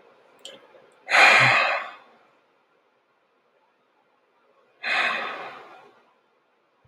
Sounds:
Sigh